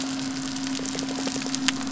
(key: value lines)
label: biophony
recorder: SoundTrap 300